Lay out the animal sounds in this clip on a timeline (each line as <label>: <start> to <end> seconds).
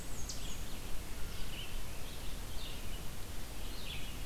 Black-and-white Warbler (Mniotilta varia): 0.0 to 0.6 seconds
Red-eyed Vireo (Vireo olivaceus): 0.0 to 4.3 seconds
Eastern Chipmunk (Tamias striatus): 0.2 to 0.4 seconds